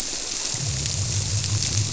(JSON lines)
{"label": "biophony", "recorder": "SoundTrap 300"}